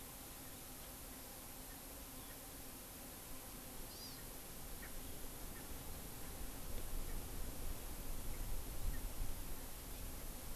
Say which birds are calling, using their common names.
Erckel's Francolin, Hawaii Amakihi